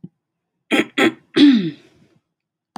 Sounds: Throat clearing